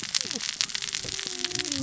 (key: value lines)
label: biophony, cascading saw
recorder: SoundTrap 600 or HydroMoth